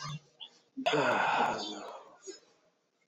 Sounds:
Sigh